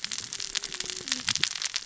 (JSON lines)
{"label": "biophony, cascading saw", "recorder": "SoundTrap 600 or HydroMoth"}